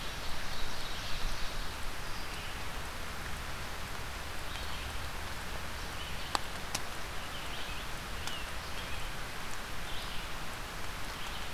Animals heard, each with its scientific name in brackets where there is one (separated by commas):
Red-eyed Vireo (Vireo olivaceus), Ovenbird (Seiurus aurocapilla), Scarlet Tanager (Piranga olivacea)